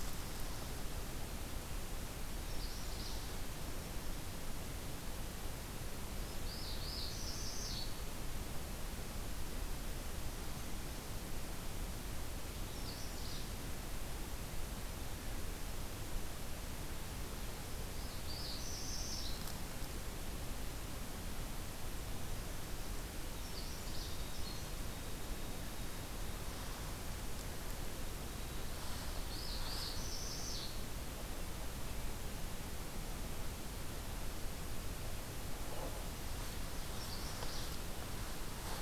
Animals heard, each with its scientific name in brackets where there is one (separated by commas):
White-throated Sparrow (Zonotrichia albicollis), Magnolia Warbler (Setophaga magnolia), Northern Parula (Setophaga americana)